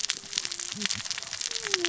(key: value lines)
label: biophony, cascading saw
recorder: SoundTrap 600 or HydroMoth